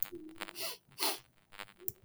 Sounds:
Sniff